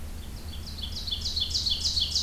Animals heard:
Ovenbird (Seiurus aurocapilla)

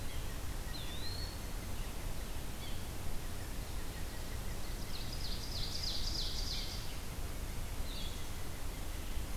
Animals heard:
Gray Catbird (Dumetella carolinensis), Red-eyed Vireo (Vireo olivaceus), Eastern Wood-Pewee (Contopus virens), unidentified call, Ovenbird (Seiurus aurocapilla)

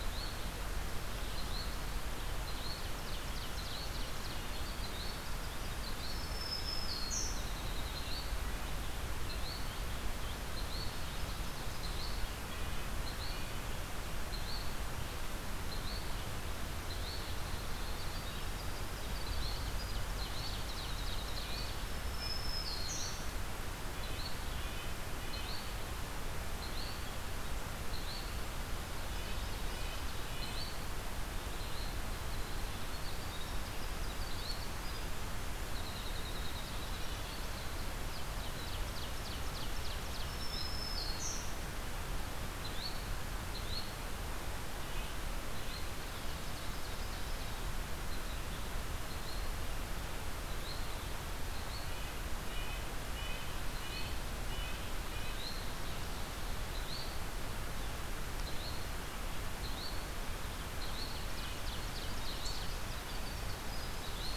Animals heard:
Red-breasted Nuthatch (Sitta canadensis), Ovenbird (Seiurus aurocapilla), Yellow-bellied Flycatcher (Empidonax flaviventris), Black-throated Green Warbler (Setophaga virens), Winter Wren (Troglodytes hiemalis)

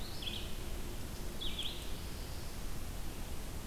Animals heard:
Red-eyed Vireo (Vireo olivaceus)

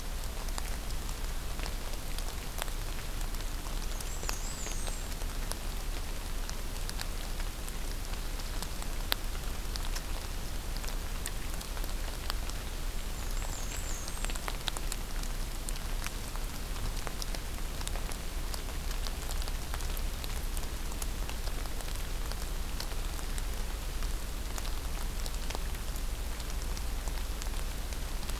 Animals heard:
Black-and-white Warbler (Mniotilta varia), Black-throated Green Warbler (Setophaga virens)

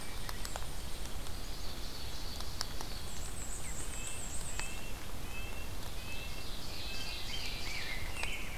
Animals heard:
Black-and-white Warbler (Mniotilta varia), Ovenbird (Seiurus aurocapilla), Rose-breasted Grosbeak (Pheucticus ludovicianus), Red-breasted Nuthatch (Sitta canadensis)

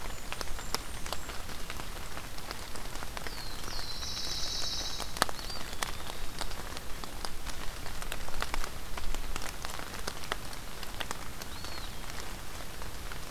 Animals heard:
Pine Warbler (Setophaga pinus), Blackburnian Warbler (Setophaga fusca), Eastern Wood-Pewee (Contopus virens)

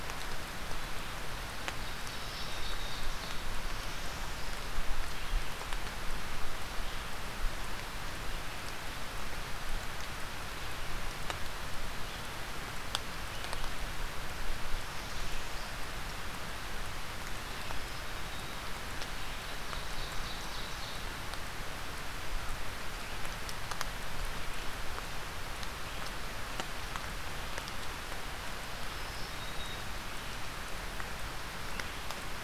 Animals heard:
Northern Parula (Setophaga americana), Black-throated Green Warbler (Setophaga virens), Ovenbird (Seiurus aurocapilla)

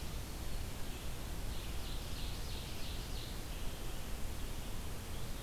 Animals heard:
Red-eyed Vireo (Vireo olivaceus), Ovenbird (Seiurus aurocapilla)

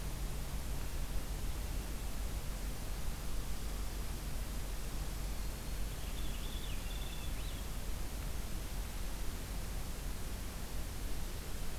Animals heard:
Black-throated Green Warbler (Setophaga virens), Purple Finch (Haemorhous purpureus)

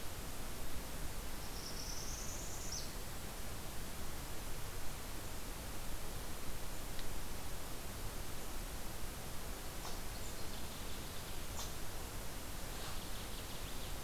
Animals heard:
Northern Waterthrush (Parkesia noveboracensis), Northern Parula (Setophaga americana)

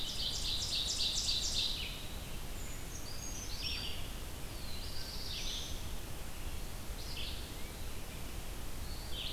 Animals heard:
Ovenbird (Seiurus aurocapilla), Black-throated Blue Warbler (Setophaga caerulescens), Red-eyed Vireo (Vireo olivaceus), Eastern Wood-Pewee (Contopus virens), Brown Creeper (Certhia americana)

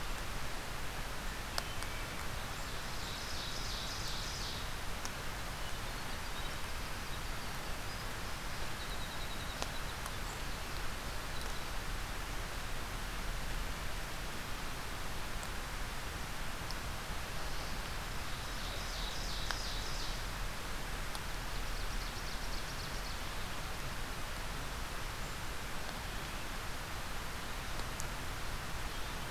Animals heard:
Winter Wren (Troglodytes hiemalis), Ovenbird (Seiurus aurocapilla)

